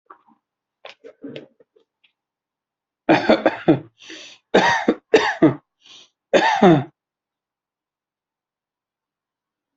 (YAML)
expert_labels:
- quality: good
  cough_type: dry
  dyspnea: false
  wheezing: false
  stridor: false
  choking: false
  congestion: true
  nothing: false
  diagnosis: upper respiratory tract infection
  severity: mild
age: 34
gender: male
respiratory_condition: false
fever_muscle_pain: false
status: healthy